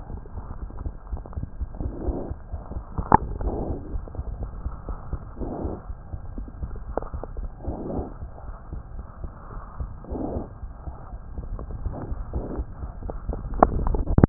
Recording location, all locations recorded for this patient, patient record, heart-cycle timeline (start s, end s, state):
aortic valve (AV)
aortic valve (AV)+mitral valve (MV)
#Age: Infant
#Sex: Female
#Height: 68.0 cm
#Weight: 7.6 kg
#Pregnancy status: False
#Murmur: Absent
#Murmur locations: nan
#Most audible location: nan
#Systolic murmur timing: nan
#Systolic murmur shape: nan
#Systolic murmur grading: nan
#Systolic murmur pitch: nan
#Systolic murmur quality: nan
#Diastolic murmur timing: nan
#Diastolic murmur shape: nan
#Diastolic murmur grading: nan
#Diastolic murmur pitch: nan
#Diastolic murmur quality: nan
#Outcome: Abnormal
#Campaign: 2015 screening campaign
0.00	0.60	unannotated
0.60	0.70	S1
0.70	0.80	systole
0.80	0.92	S2
0.92	1.10	diastole
1.10	1.22	S1
1.22	1.34	systole
1.34	1.44	S2
1.44	1.58	diastole
1.58	1.68	S1
1.68	1.80	systole
1.80	1.92	S2
1.92	2.06	diastole
2.06	2.16	S1
2.16	2.28	systole
2.28	2.38	S2
2.38	2.52	diastole
2.52	2.62	S1
2.62	2.72	systole
2.72	2.82	S2
2.82	2.96	diastole
2.96	3.06	S1
3.06	3.68	unannotated
3.68	3.80	S2
3.80	3.92	diastole
3.92	4.04	S1
4.04	4.16	systole
4.16	4.26	S2
4.26	4.40	diastole
4.40	4.52	S1
4.52	4.64	systole
4.64	4.74	S2
4.74	4.88	diastole
4.88	4.98	S1
4.98	5.10	systole
5.10	5.20	S2
5.20	5.38	diastole
5.38	5.50	S1
5.50	5.62	systole
5.62	5.74	S2
5.74	5.88	diastole
5.88	5.98	S1
5.98	6.11	systole
6.11	6.20	S2
6.20	6.36	diastole
6.36	6.48	S1
6.48	6.60	systole
6.60	6.70	S2
6.70	6.87	diastole
6.87	6.98	S1
6.98	7.10	systole
7.10	7.22	S2
7.22	7.36	diastole
7.36	7.50	S1
7.50	7.64	systole
7.64	7.76	S2
7.76	7.92	diastole
7.92	8.06	S1
8.06	8.21	systole
8.21	8.30	S2
8.30	8.48	diastole
8.48	8.56	S1
8.56	8.72	systole
8.72	8.82	S2
8.82	8.94	diastole
8.94	9.06	S1
9.06	9.22	systole
9.22	9.32	S2
9.32	9.52	diastole
9.52	9.62	S1
9.62	9.80	systole
9.80	9.92	S2
9.92	10.10	diastole
10.10	10.20	S1
10.20	10.34	systole
10.34	10.46	S2
10.46	10.62	diastole
10.62	10.74	S1
10.74	10.86	systole
10.86	10.96	S2
10.96	11.12	diastole
11.12	11.24	S1
11.24	14.29	unannotated